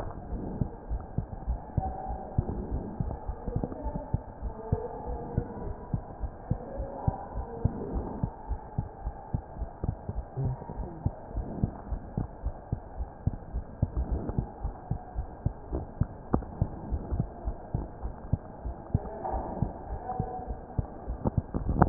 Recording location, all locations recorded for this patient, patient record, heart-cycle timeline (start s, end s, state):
mitral valve (MV)
aortic valve (AV)+pulmonary valve (PV)+tricuspid valve (TV)+mitral valve (MV)
#Age: Child
#Sex: Male
#Height: 117.0 cm
#Weight: 22.7 kg
#Pregnancy status: False
#Murmur: Absent
#Murmur locations: nan
#Most audible location: nan
#Systolic murmur timing: nan
#Systolic murmur shape: nan
#Systolic murmur grading: nan
#Systolic murmur pitch: nan
#Systolic murmur quality: nan
#Diastolic murmur timing: nan
#Diastolic murmur shape: nan
#Diastolic murmur grading: nan
#Diastolic murmur pitch: nan
#Diastolic murmur quality: nan
#Outcome: Normal
#Campaign: 2015 screening campaign
0.00	0.12	S2
0.12	0.30	diastole
0.30	0.44	S1
0.44	0.58	systole
0.58	0.72	S2
0.72	0.88	diastole
0.88	1.02	S1
1.02	1.14	systole
1.14	1.28	S2
1.28	1.46	diastole
1.46	1.60	S1
1.60	1.74	systole
1.74	1.86	S2
1.86	2.06	diastole
2.06	2.18	S1
2.18	2.34	systole
2.34	2.50	S2
2.50	2.70	diastole
2.70	2.86	S1
2.86	2.98	systole
2.98	3.10	S2
3.10	3.26	diastole
3.26	3.36	S1
3.36	3.52	systole
3.52	3.68	S2
3.68	3.84	diastole
3.84	3.96	S1
3.96	4.10	systole
4.10	4.22	S2
4.22	4.42	diastole
4.42	4.54	S1
4.54	4.70	systole
4.70	4.84	S2
4.84	5.06	diastole
5.06	5.18	S1
5.18	5.34	systole
5.34	5.44	S2
5.44	5.64	diastole
5.64	5.74	S1
5.74	5.90	systole
5.90	6.04	S2
6.04	6.20	diastole
6.20	6.30	S1
6.30	6.48	systole
6.48	6.58	S2
6.58	6.76	diastole
6.76	6.88	S1
6.88	7.06	systole
7.06	7.16	S2
7.16	7.36	diastole
7.36	7.46	S1
7.46	7.62	systole
7.62	7.76	S2
7.76	7.94	diastole
7.94	8.06	S1
8.06	8.20	systole
8.20	8.32	S2
8.32	8.48	diastole
8.48	8.58	S1
8.58	8.74	systole
8.74	8.86	S2
8.86	9.04	diastole
9.04	9.14	S1
9.14	9.30	systole
9.30	9.42	S2
9.42	9.59	diastole
9.59	9.70	S1
9.70	9.84	systole
9.84	9.96	S2
9.96	10.16	diastole
10.16	10.26	S1
10.26	10.40	systole
10.40	10.56	S2
10.56	10.78	diastole
10.78	10.88	S1
10.88	11.04	systole
11.04	11.14	S2
11.14	11.34	diastole
11.34	11.46	S1
11.46	11.60	systole
11.60	11.72	S2
11.72	11.89	diastole
11.89	12.04	S1
12.04	12.16	systole
12.16	12.28	S2
12.28	12.42	diastole
12.42	12.54	S1
12.54	12.68	systole
12.68	12.80	S2
12.80	12.98	diastole
12.98	13.08	S1
13.08	13.24	systole
13.24	13.34	S2
13.34	13.51	diastole
13.51	13.64	S1
13.64	13.80	systole
13.80	13.90	S2
13.90	14.10	diastole
14.10	14.24	S1
14.24	14.36	systole
14.36	14.48	S2
14.48	14.62	diastole
14.62	14.76	S1
14.76	14.89	systole
14.89	15.00	S2
15.00	15.16	diastole
15.16	15.28	S1
15.28	15.44	systole
15.44	15.56	S2
15.56	15.70	diastole
15.70	15.86	S1
15.86	15.98	systole
15.98	16.14	S2
16.14	16.32	diastole
16.32	16.44	S1
16.44	16.58	systole
16.58	16.72	S2
16.72	16.90	diastole
16.90	17.02	S1
17.02	17.14	systole
17.14	17.30	S2
17.30	17.44	diastole
17.44	17.56	S1
17.56	17.71	systole
17.71	17.85	S2
17.85	18.01	diastole
18.01	18.14	S1
18.14	18.30	systole
18.30	18.46	S2
18.46	18.64	diastole
18.64	18.76	S1
18.76	18.90	systole
18.90	19.06	S2
19.06	19.30	diastole
19.30	19.44	S1
19.44	19.58	systole
19.58	19.72	S2
19.72	19.90	diastole
19.90	20.00	S1
20.00	20.18	systole
20.18	20.32	S2
20.32	20.46	diastole
20.46	20.60	S1
20.60	20.76	systole
20.76	20.92	S2
20.92	21.05	diastole
21.05	21.20	S1
21.20	21.36	systole
21.36	21.46	S2
21.46	21.70	diastole